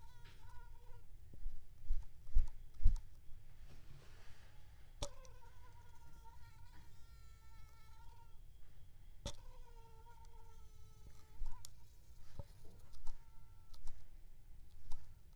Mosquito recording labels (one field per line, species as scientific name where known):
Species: Aedes aegypti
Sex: female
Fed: unfed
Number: one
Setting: cup